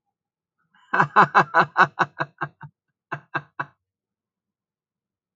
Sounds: Laughter